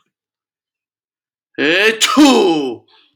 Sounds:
Sneeze